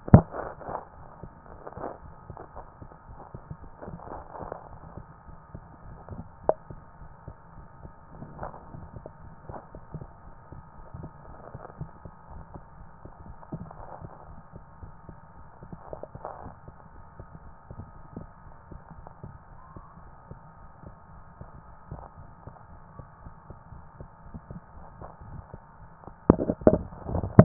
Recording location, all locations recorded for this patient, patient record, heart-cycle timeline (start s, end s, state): tricuspid valve (TV)
aortic valve (AV)+pulmonary valve (PV)+tricuspid valve (TV)
#Age: Child
#Sex: Female
#Height: 141.0 cm
#Weight: 45.2 kg
#Pregnancy status: False
#Murmur: Absent
#Murmur locations: nan
#Most audible location: nan
#Systolic murmur timing: nan
#Systolic murmur shape: nan
#Systolic murmur grading: nan
#Systolic murmur pitch: nan
#Systolic murmur quality: nan
#Diastolic murmur timing: nan
#Diastolic murmur shape: nan
#Diastolic murmur grading: nan
#Diastolic murmur pitch: nan
#Diastolic murmur quality: nan
#Outcome: Abnormal
#Campaign: 2014 screening campaign
0.00	23.41	unannotated
23.41	23.50	diastole
23.50	23.55	S1
23.55	23.72	systole
23.72	23.80	S2
23.80	24.00	diastole
24.00	24.10	S1
24.10	24.29	systole
24.29	24.38	S2
24.38	24.51	diastole
24.51	24.60	S1
24.60	24.76	systole
24.76	24.84	S2
24.84	25.01	diastole
25.01	25.10	S1
25.10	25.21	systole
25.21	25.25	S2
25.25	25.37	diastole
25.37	25.42	S1
25.42	25.54	systole
25.54	25.60	S2
25.60	25.81	diastole
25.81	25.90	S1
25.90	26.04	systole
26.04	26.12	S2
26.12	26.30	diastole
26.30	27.44	unannotated